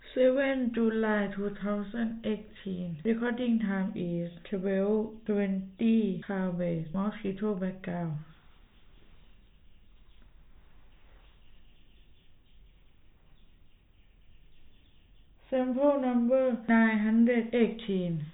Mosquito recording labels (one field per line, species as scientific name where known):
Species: no mosquito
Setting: cup